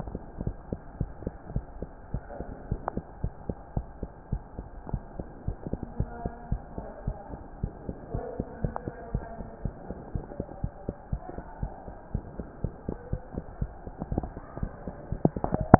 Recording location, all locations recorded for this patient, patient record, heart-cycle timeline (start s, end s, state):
mitral valve (MV)
aortic valve (AV)+pulmonary valve (PV)+tricuspid valve (TV)+mitral valve (MV)
#Age: Child
#Sex: Female
#Height: 92.0 cm
#Weight: 13.6 kg
#Pregnancy status: False
#Murmur: Absent
#Murmur locations: nan
#Most audible location: nan
#Systolic murmur timing: nan
#Systolic murmur shape: nan
#Systolic murmur grading: nan
#Systolic murmur pitch: nan
#Systolic murmur quality: nan
#Diastolic murmur timing: nan
#Diastolic murmur shape: nan
#Diastolic murmur grading: nan
#Diastolic murmur pitch: nan
#Diastolic murmur quality: nan
#Outcome: Abnormal
#Campaign: 2015 screening campaign
0.00	0.40	unannotated
0.40	0.56	S1
0.56	0.68	systole
0.68	0.80	S2
0.80	0.96	diastole
0.96	1.12	S1
1.12	1.22	systole
1.22	1.34	S2
1.34	1.50	diastole
1.50	1.64	S1
1.64	1.80	systole
1.80	1.92	S2
1.92	2.10	diastole
2.10	2.22	S1
2.22	2.37	systole
2.37	2.48	S2
2.48	2.66	diastole
2.66	2.82	S1
2.82	2.94	systole
2.94	3.04	S2
3.04	3.20	diastole
3.20	3.32	S1
3.32	3.45	systole
3.45	3.56	S2
3.56	3.72	diastole
3.72	3.88	S1
3.88	4.00	systole
4.00	4.10	S2
4.10	4.28	diastole
4.28	4.42	S1
4.42	4.55	systole
4.55	4.68	S2
4.68	4.88	diastole
4.88	5.02	S1
5.02	5.16	systole
5.16	5.26	S2
5.26	5.44	diastole
5.44	5.56	S1
5.56	5.66	systole
5.66	5.80	S2
5.80	5.96	diastole
5.96	6.10	S1
6.10	6.22	systole
6.22	6.34	S2
6.34	6.49	diastole
6.49	6.62	S1
6.62	6.74	systole
6.74	6.88	S2
6.88	7.04	diastole
7.04	7.16	S1
7.16	7.30	systole
7.30	7.40	S2
7.40	7.60	diastole
7.60	7.72	S1
7.72	7.86	systole
7.86	7.96	S2
7.96	8.12	diastole
8.12	8.24	S1
8.24	8.38	systole
8.38	8.48	S2
8.48	8.62	diastole
8.62	8.76	S1
8.76	8.84	systole
8.84	8.94	S2
8.94	9.10	diastole
9.10	9.24	S1
9.24	9.38	systole
9.38	9.48	S2
9.48	9.64	diastole
9.64	9.76	S1
9.76	9.88	systole
9.88	9.98	S2
9.98	10.14	diastole
10.14	10.26	S1
10.26	10.36	systole
10.36	10.46	S2
10.46	10.60	diastole
10.60	10.72	S1
10.72	10.85	systole
10.85	10.94	S2
10.94	11.11	diastole
11.11	11.22	S1
11.22	11.36	systole
11.36	11.44	S2
11.44	11.60	diastole
11.60	11.72	S1
11.72	11.84	systole
11.84	11.96	S2
11.96	12.11	diastole
12.11	12.24	S1
12.24	12.38	systole
12.38	12.48	S2
12.48	12.62	diastole
12.62	12.74	S1
12.74	12.84	systole
12.84	12.96	S2
12.96	13.10	diastole
13.10	13.22	S1
13.22	13.34	systole
13.34	13.44	S2
13.44	13.60	diastole
13.60	13.72	S1
13.72	13.84	systole
13.84	13.94	S2
13.94	15.79	unannotated